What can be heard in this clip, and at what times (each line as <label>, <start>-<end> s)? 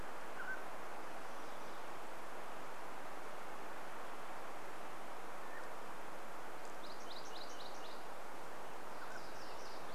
Mountain Quail call, 0-2 s
Mountain Quail call, 4-6 s
MacGillivray's Warbler song, 6-8 s
Mountain Quail call, 8-10 s